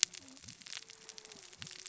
{"label": "biophony, cascading saw", "recorder": "SoundTrap 600 or HydroMoth"}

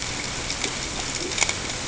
{"label": "ambient", "recorder": "HydroMoth"}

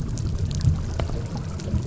{"label": "anthrophony, boat engine", "recorder": "SoundTrap 300"}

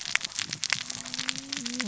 {"label": "biophony, cascading saw", "recorder": "SoundTrap 600 or HydroMoth"}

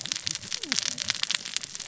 {"label": "biophony, cascading saw", "recorder": "SoundTrap 600 or HydroMoth"}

